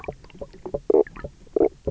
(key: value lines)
label: biophony, knock croak
recorder: SoundTrap 300